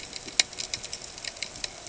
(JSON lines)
{"label": "ambient", "recorder": "HydroMoth"}